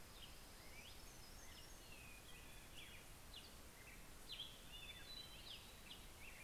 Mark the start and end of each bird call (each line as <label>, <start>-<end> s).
Black-headed Grosbeak (Pheucticus melanocephalus), 0.0-6.4 s
Hermit Warbler (Setophaga occidentalis), 0.5-2.3 s
Hermit Thrush (Catharus guttatus), 3.5-6.0 s